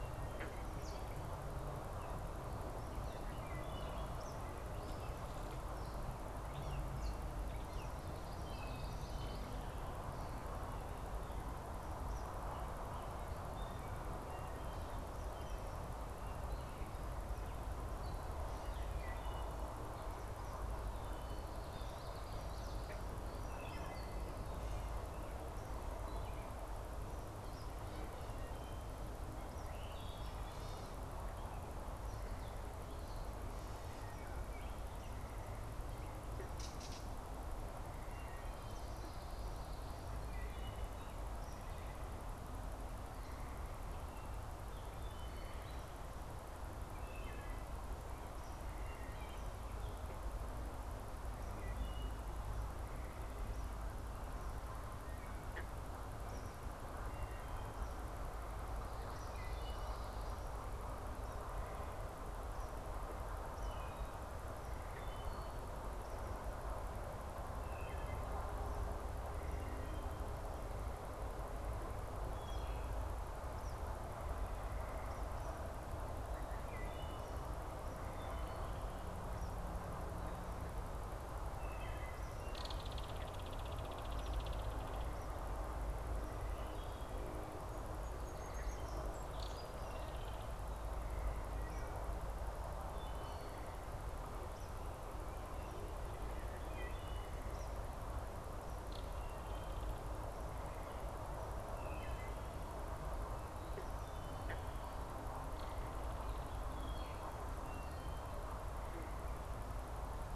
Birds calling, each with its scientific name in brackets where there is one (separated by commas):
Gray Catbird (Dumetella carolinensis), Belted Kingfisher (Megaceryle alcyon), Song Sparrow (Melospiza melodia), Common Yellowthroat (Geothlypis trichas), Eastern Kingbird (Tyrannus tyrannus), Wood Thrush (Hylocichla mustelina)